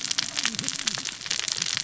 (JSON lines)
{"label": "biophony, cascading saw", "recorder": "SoundTrap 600 or HydroMoth"}